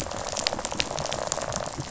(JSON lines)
{"label": "biophony, rattle", "recorder": "SoundTrap 500"}